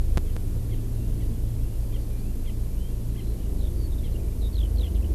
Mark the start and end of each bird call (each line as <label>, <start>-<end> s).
Erckel's Francolin (Pternistis erckelii), 0.7-0.8 s
Erckel's Francolin (Pternistis erckelii), 1.2-1.3 s
Erckel's Francolin (Pternistis erckelii), 1.9-2.0 s
Erckel's Francolin (Pternistis erckelii), 2.4-2.5 s
Eurasian Skylark (Alauda arvensis), 2.6-5.1 s
Erckel's Francolin (Pternistis erckelii), 3.1-3.2 s
Erckel's Francolin (Pternistis erckelii), 4.0-4.1 s